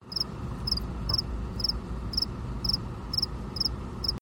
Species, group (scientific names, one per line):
Acheta domesticus
Orthoptera